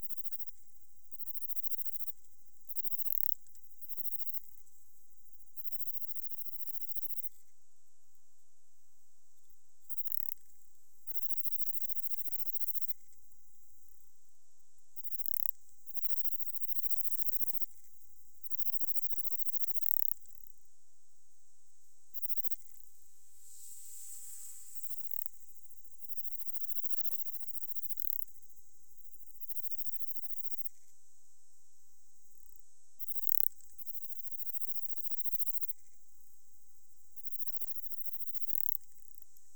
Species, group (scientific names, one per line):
Platycleis affinis
Orthoptera